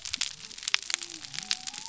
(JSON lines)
{"label": "biophony", "recorder": "SoundTrap 300"}